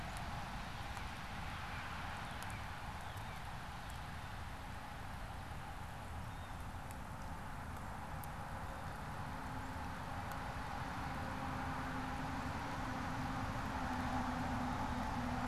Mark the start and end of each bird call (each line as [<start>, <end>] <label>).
[0.36, 4.46] Northern Cardinal (Cardinalis cardinalis)
[6.16, 6.66] Blue Jay (Cyanocitta cristata)
[13.96, 15.26] Black-capped Chickadee (Poecile atricapillus)